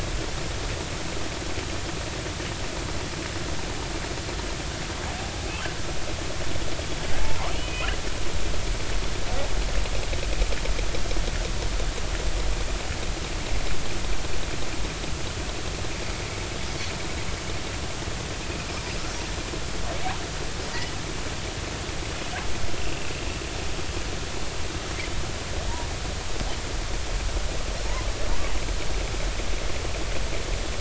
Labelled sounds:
7.2	8.0	killer whale, southern resident, J clan, 0.83 to 3.1 kHz
22.8	23.1	killer whale, southern resident, J clan, 2.6 to 2.8 kHz

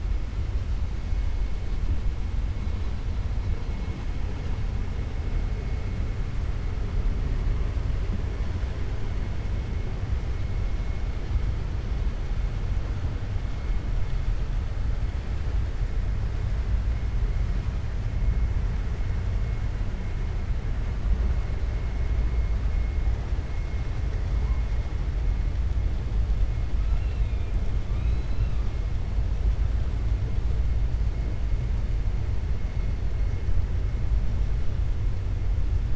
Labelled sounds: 26.8	27.5	killer whale, 2.4 to 4.3 kHz
27.8	28.6	killer whale, 1.5 to 4.1 kHz

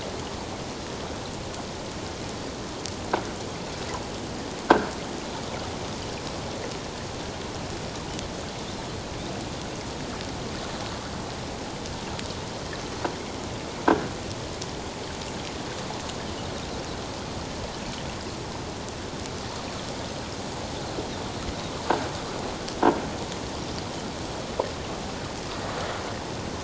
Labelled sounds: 4.7	4.9	croaking sound likely from a nearby submerged object, 1.3 to 1.7 kHz

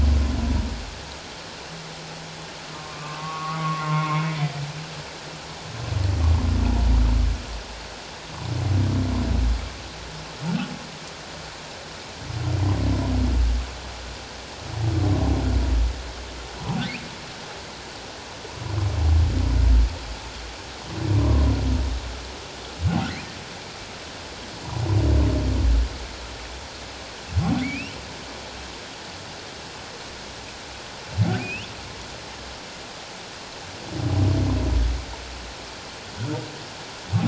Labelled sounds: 2.7	4.4	humpback whale, 1.0 to 2.3 kHz
21.2	21.4	humpback whale, 0.97 to 1.2 kHz
27.6	28.0	humpback whale, 2.0 to 3.1 kHz
31.4	31.7	humpback whale, 2.2 to 3.1 kHz

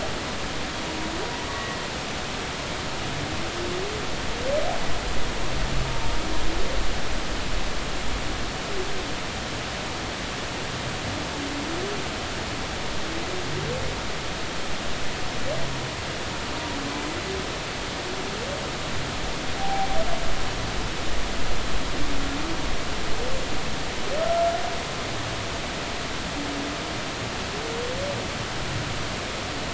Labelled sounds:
1.5	1.8	humpback whale, 1.1 to 1.2 kHz
19.6	19.9	humpback whale, 0.80 to 0.90 kHz

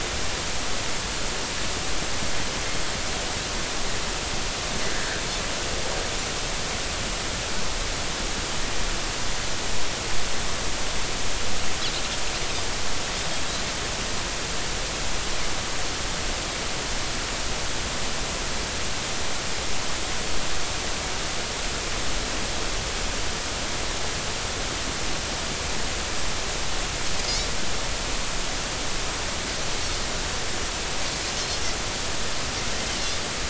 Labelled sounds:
4.9	5.2	Pacific white-sided dolphin, 1.5 to 1.8 kHz

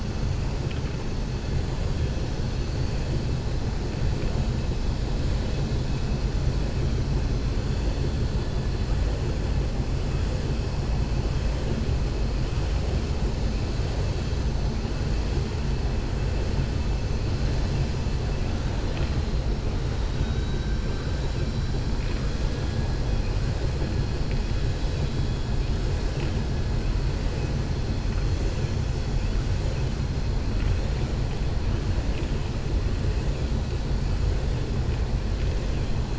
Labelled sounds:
20.0	20.7	vessel noise, 3.1 to 3.9 kHz

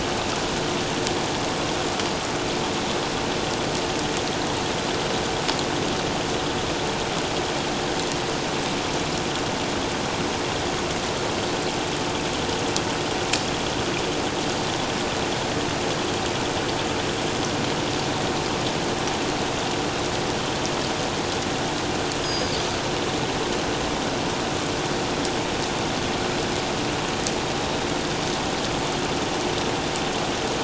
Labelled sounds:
22.2	22.6	Pacific white-sided dolphin, 4.4 to 6.7 kHz

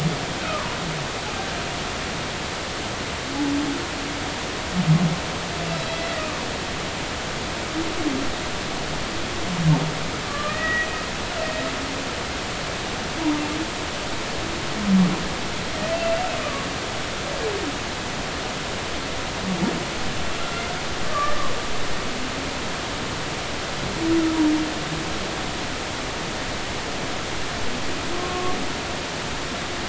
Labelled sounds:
5.9	6.2	humpback whale, 1.9 to 2.0 kHz
10.3	10.9	humpback whale, 1.1 to 2.0 kHz
21.1	21.4	humpback whale, 1.1 to 1.2 kHz
28.1	28.6	humpback whale, 1.0 to 1.2 kHz

